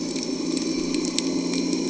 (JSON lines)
{"label": "anthrophony, boat engine", "recorder": "HydroMoth"}